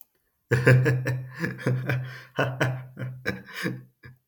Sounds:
Laughter